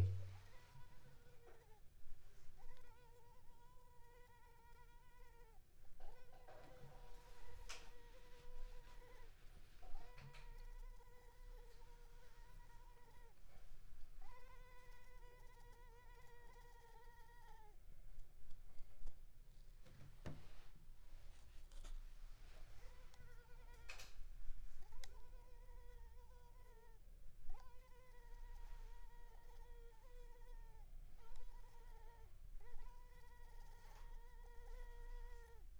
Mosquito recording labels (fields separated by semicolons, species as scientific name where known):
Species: Culex pipiens complex; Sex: female; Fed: unfed; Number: one; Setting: cup